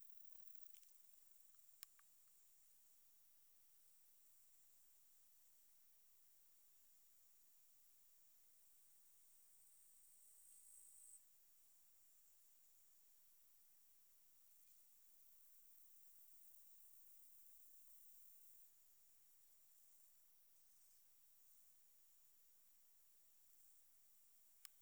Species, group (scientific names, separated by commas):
Conocephalus fuscus, Orthoptera